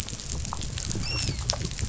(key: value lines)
label: biophony, dolphin
recorder: SoundTrap 500